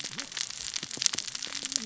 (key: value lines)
label: biophony, cascading saw
recorder: SoundTrap 600 or HydroMoth